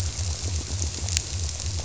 {"label": "biophony, squirrelfish (Holocentrus)", "recorder": "SoundTrap 300"}
{"label": "biophony", "recorder": "SoundTrap 300"}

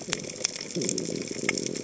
{"label": "biophony", "recorder": "HydroMoth"}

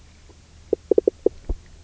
{"label": "biophony, knock croak", "recorder": "SoundTrap 300"}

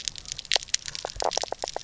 {"label": "biophony, knock croak", "recorder": "SoundTrap 300"}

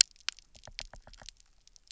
{"label": "biophony, knock", "recorder": "SoundTrap 300"}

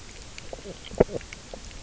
{"label": "biophony, knock croak", "recorder": "SoundTrap 300"}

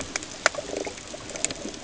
{"label": "ambient", "recorder": "HydroMoth"}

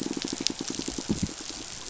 {"label": "biophony, pulse", "recorder": "SoundTrap 500"}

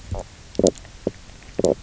{"label": "biophony, stridulation", "recorder": "SoundTrap 300"}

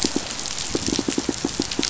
{"label": "biophony, pulse", "recorder": "SoundTrap 500"}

